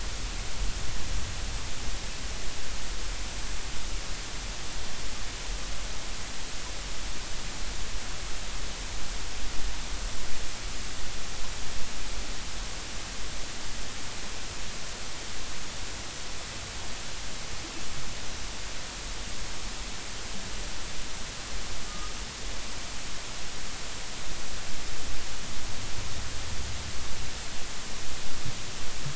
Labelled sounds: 21.9	22.1	humpback whale, 1.2 to 1.3 kHz

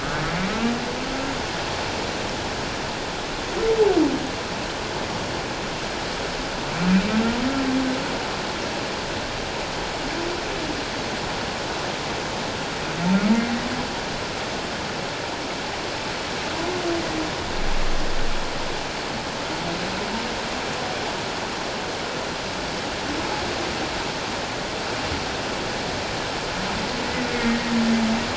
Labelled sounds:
27.3	27.7	humpback whale, 1.8 to 2.2 kHz

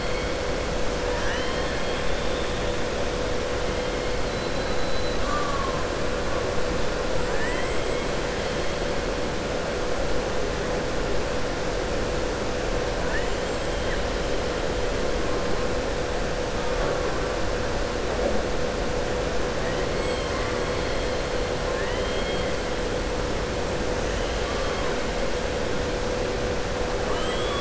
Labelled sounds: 7.2	8.0	killer whale, southern resident, 0.96 to 3.2 kHz
19.6	20.6	killer whale, southern resident, 1.0 to 8.0 kHz
21.6	22.4	killer whale, southern resident, 0.97 to 4.2 kHz

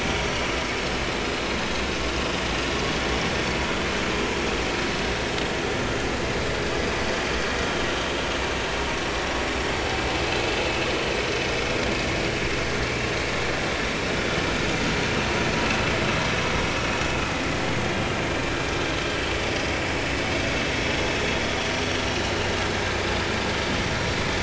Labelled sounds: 22.0	22.3	vessel noise, 3.8 to 4.0 kHz

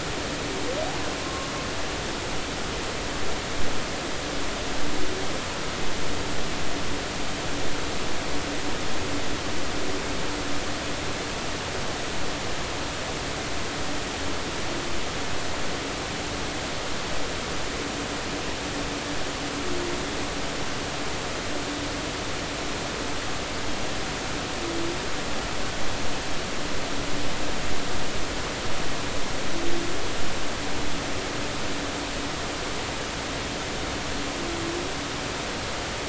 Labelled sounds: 1.2	1.5	humpback whale, 1.0 to 1.1 kHz

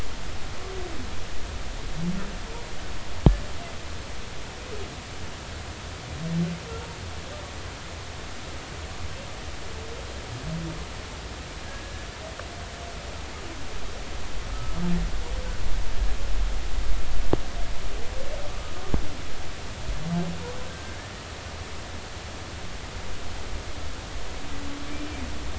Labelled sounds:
18.5	18.7	humpback whale, 1.1 to 1.3 kHz
20.7	21.1	humpback whale, 1.5 to 1.8 kHz

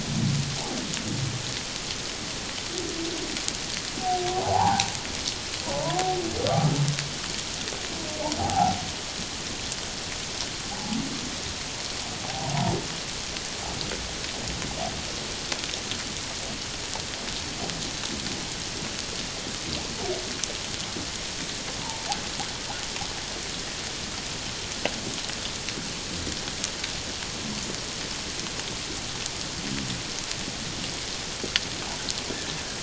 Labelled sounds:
4.3	4.9	humpback whale, 0.78 to 1.1 kHz
5.7	6.0	humpback whale, 0.81 to 1.1 kHz
8.4	8.8	humpback whale, 0.78 to 0.97 kHz
12.2	12.7	humpback whale, 0.78 to 1.0 kHz
21.8	22.1	humpback whale, 0.81 to 1.0 kHz

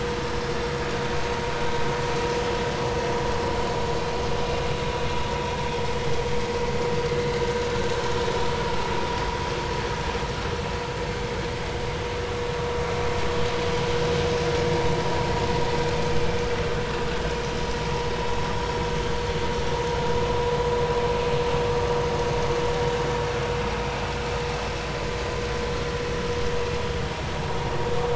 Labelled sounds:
7.4	7.6	vessel noise, 1.4 to 1.6 kHz

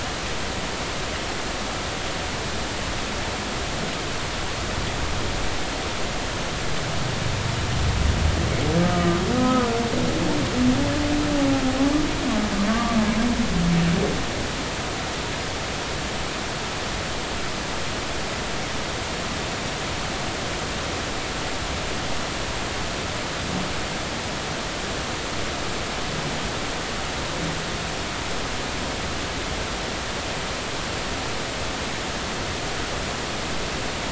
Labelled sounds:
8.8	9.7	humpback whale, 1.2 to 1.3 kHz
12.7	13.0	humpback whale, 1.1 to 1.2 kHz

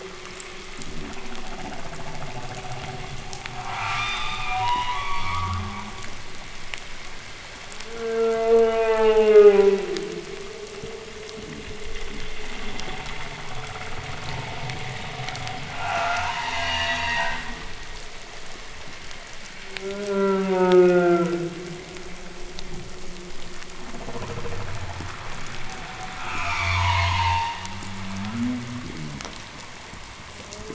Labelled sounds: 0.7	1.9	fish, groan, 0 to 0.37 kHz
0.7	3.2	humpback whale, creak, 0.04 to 1.1 kHz
3.5	6.0	humpback whale, scream, 0.54 to 6.4 kHz
5.0	6.3	humpback whale, 0.04 to 0.27 kHz
7.7	10.2	humpback whale, moan, 0.07 to 4.0 kHz
10.7	12.4	fish, knock and groan, 0.02 to 0.39 kHz
12.3	15.8	humpback whale, creak, 0.06 to 1.7 kHz
15.6	17.5	humpback whale, scream, 0.55 to 7.2 kHz
16.0	17.9	humpback whale, 0.02 to 0.30 kHz
19.5	21.9	humpback whale, moan, 0.07 to 4.1 kHz
23.7	25.5	humpback whale, creak, 0.03 to 1.7 kHz
25.9	28.8	humpback whale, 0 to 0.44 kHz
26.0	27.9	humpback whale, scream, 0.54 to 7.2 kHz
28.8	29.4	fish, groan, 0 to 0.44 kHz

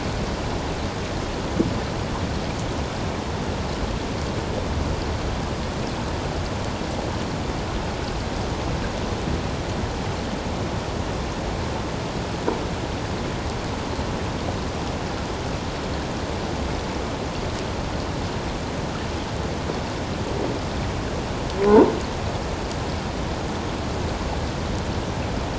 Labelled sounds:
21.6	21.9	croaking sound likely from a nearby submerged object, 0.81 to 1.1 kHz

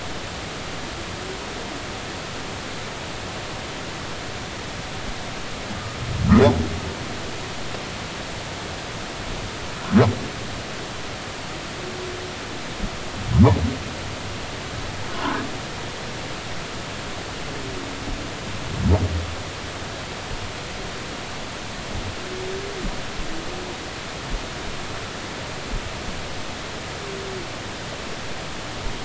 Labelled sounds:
15.1	15.4	humpback whale, 0.86 to 1.1 kHz

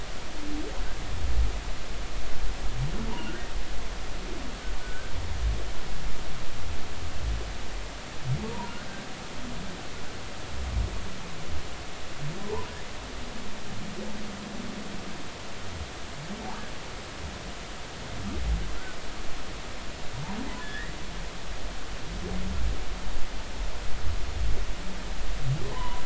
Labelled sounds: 4.8	5.1	humpback whale, 1.4 to 1.6 kHz
12.4	12.7	humpback whale, 0.83 to 1.1 kHz
20.6	21.0	humpback whale, 1.6 to 2.0 kHz
25.6	26.0	humpback whale, 0.83 to 1.1 kHz

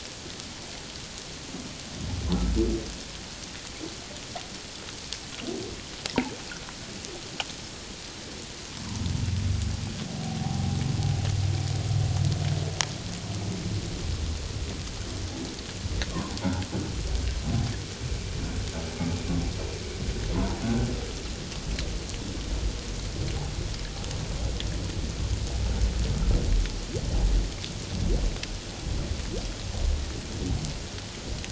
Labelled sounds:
10.2	10.8	humpback whale, 0.78 to 0.84 kHz
16.1	16.4	humpback whale, 0.88 to 1.2 kHz
20.3	20.9	humpback whale, 0.81 to 1.6 kHz

